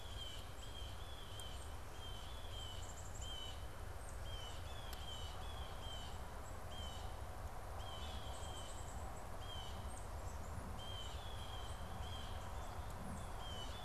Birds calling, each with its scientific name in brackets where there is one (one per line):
Blue Jay (Cyanocitta cristata)
Black-capped Chickadee (Poecile atricapillus)
unidentified bird